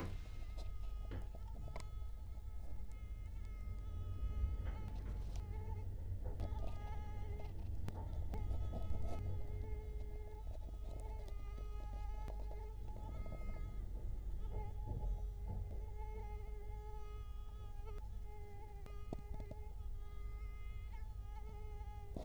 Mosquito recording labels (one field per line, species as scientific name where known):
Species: Culex quinquefasciatus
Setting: cup